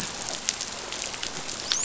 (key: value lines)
label: biophony, dolphin
recorder: SoundTrap 500